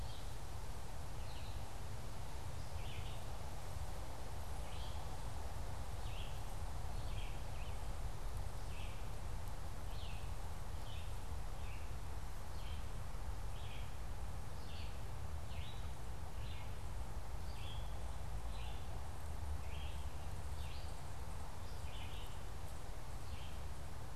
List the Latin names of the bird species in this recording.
Geothlypis trichas, Vireo olivaceus